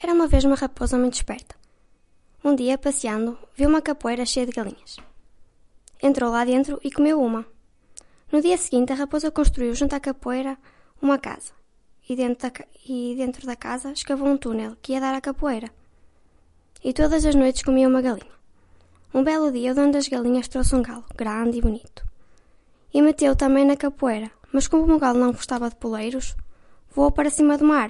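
A young female voice speaking in a foreign language with a light, high-pitched tone. 0.0 - 27.9

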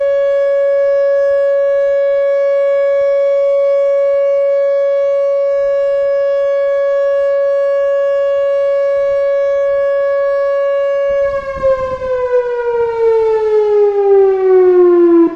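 A siren sounds at 560 Hz, decreasing in pitch toward the end. 0.0 - 15.4

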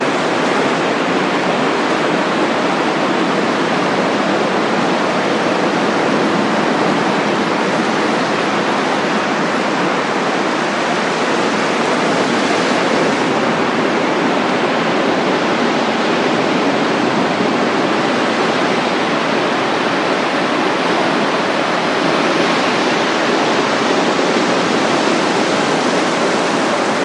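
Loud sound of waves crashing. 0.0 - 27.0

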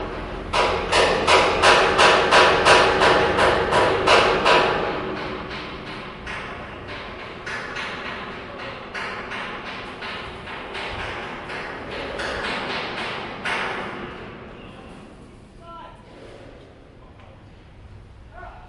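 A loud metallic hammering sound is repeated evenly. 0.0 - 5.3
Metallic hammering sounds from a distance with changing pitch and loudness. 5.2 - 14.8
Construction workers talking loudly with background noise. 14.8 - 18.7

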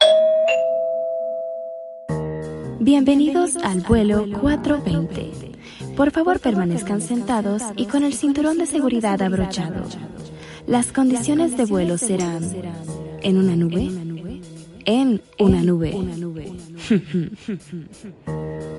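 A doorbell rings, followed by an announcement that fades away. 0.0 - 2.0
Jazz music plays, fading out at the end. 2.1 - 18.8
A woman speaking in Spanish through an audio system with echoing. 2.8 - 16.6
A woman laughs, her voice echoing as if through an audio system. 16.8 - 17.9

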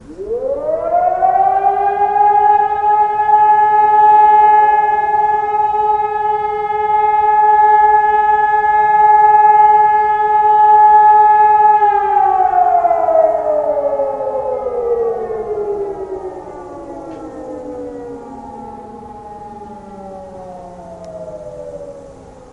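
An emergency siren gradually increases in intensity and sustains a rhythmic wailing pattern. 0.0 - 22.5

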